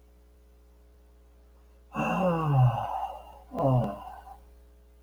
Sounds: Sigh